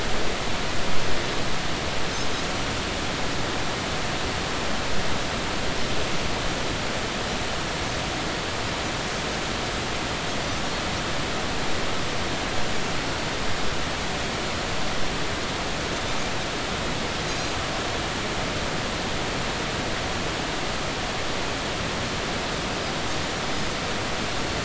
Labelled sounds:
17.2	17.5	Pacific white-sided dolphin, 6.3 to 6.6 kHz

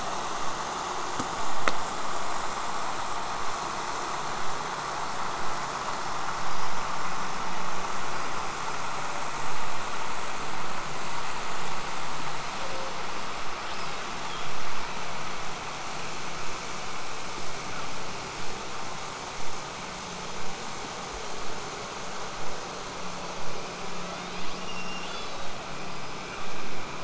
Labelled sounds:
6.3	6.8	killer whale, southern resident, 4.4 to 5.2 kHz
8.1	8.9	killer whale, southern resident, 4.7 to 5.2 kHz
13.6	14.5	killer whale, southern resident, 2.4 to 5.5 kHz
16.4	21.4	vessel noise, 0 to 8.0 kHz
23.9	25.5	killer whale, southern resident, L pod, call S02iii, 1.1 to 8.0 kHz
25.8	26.5	killer whale, southern resident, L pod, call S19, 0.98 to 5.5 kHz

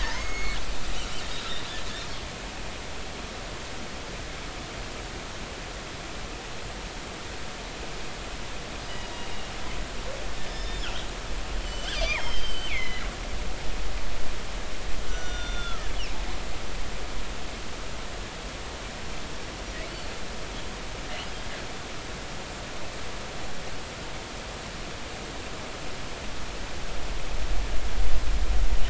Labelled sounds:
0.0	0.6	killer whale, northern resident, G clan, call N23i, 1.7 to 6.6 kHz
10.5	10.8	killer whale, northern resident, G clan, GG subclan, call N23ii, 5.0 to 5.2 kHz
11.4	13.1	killer whale, northern resident, G clan, GG subclan, call N23ii, 1.8 to 7.9 kHz
13.4	13.7	killer whale, northern resident, G clan, GG subclan, call N23ii, 4.5 to 4.8 kHz
15.1	15.9	killer whale, northern resident, G clan, call N39, 1.2 to 6.0 kHz

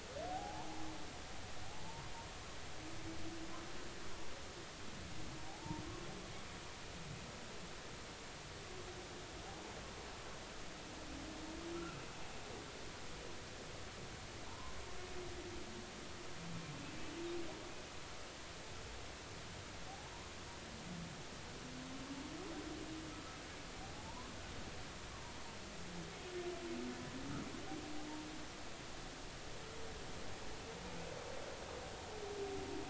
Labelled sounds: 0.3	0.7	humpback whale, 0.80 to 1.1 kHz
5.5	5.8	humpback whale, 0.80 to 1.0 kHz
11.7	12.0	humpback whale, 1.3 to 1.6 kHz
14.5	14.7	humpback whale, 0.86 to 1.1 kHz
23.9	24.3	humpback whale, 0.80 to 1.1 kHz
28.0	28.2	humpback whale, 0.80 to 0.96 kHz

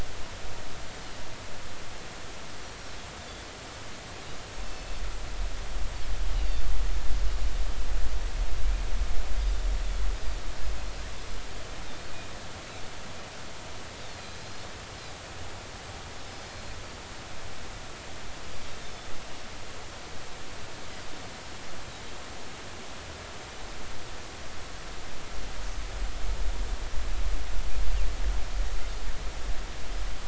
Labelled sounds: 4.6	5.0	Pacific white-sided dolphin, 2.6 to 4.5 kHz
14.4	14.7	Pacific white-sided dolphin, 4.1 to 4.4 kHz
16.3	16.7	Pacific white-sided dolphin, 4.2 to 5.2 kHz
18.8	19.1	Pacific white-sided dolphin, 3.4 to 3.6 kHz

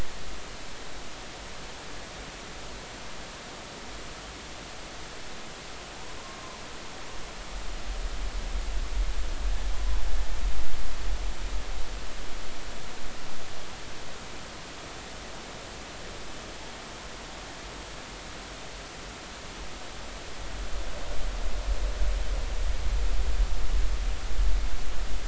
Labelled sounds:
9.7	10.0	humpback whale, 0.83 to 1.1 kHz

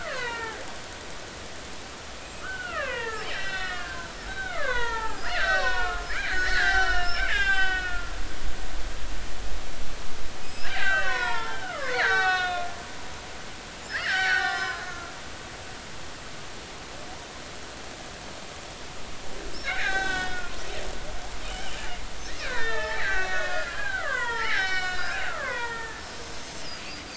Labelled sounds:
0.0	0.6	killer whale, Bigg's (transient), 0.80 to 4.4 kHz
2.2	8.1	killer whale, Bigg's (transient), 0.80 to 7.9 kHz
10.4	12.7	killer whale, Bigg's (transient), 0.80 to 8.0 kHz
13.9	15.1	killer whale, Bigg's (transient), 0.99 to 5.7 kHz
19.7	20.4	killer whale, Bigg's (transient), 0.80 to 6.2 kHz
21.4	21.8	killer whale, Bigg's (transient), 2.7 to 3.2 kHz
22.4	26.0	killer whale, Bigg's (transient), 0.80 to 5.8 kHz

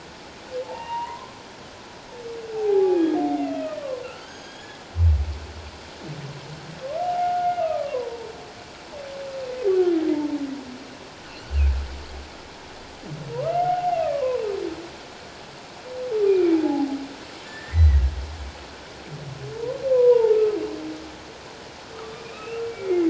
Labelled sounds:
0.6	1.4	humpback whale, 0.78 to 2.9 kHz
2.6	4.8	humpback whale, 0.78 to 6.6 kHz
7.0	8.3	humpback whale, 0.78 to 2.9 kHz
13.3	14.4	humpback whale, 0.78 to 1.4 kHz
16.2	16.9	humpback whale, 0.78 to 2.5 kHz
17.4	18.0	humpback whale, 1.7 to 6.1 kHz
19.5	20.6	humpback whale, 0.84 to 1.3 kHz
21.9	23.0	humpback whale, 1.1 to 2.8 kHz

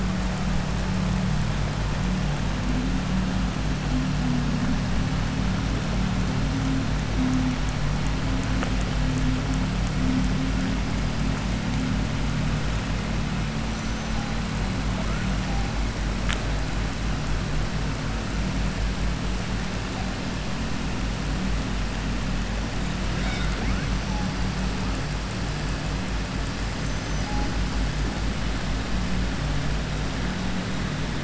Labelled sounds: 13.6	14.1	killer whale, southern resident, 5.9 to 6.9 kHz
23.1	23.9	killer whale, southern resident, 0.63 to 7.6 kHz
26.7	27.3	killer whale, southern resident, 5.0 to 7.2 kHz

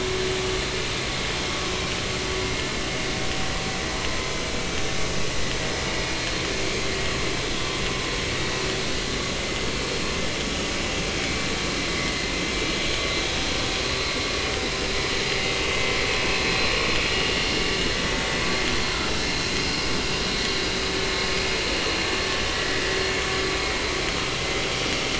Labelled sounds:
18.9	19.3	vessel noise, 3.9 to 4.0 kHz
22.5	22.8	vessel noise, 1.8 to 2.0 kHz

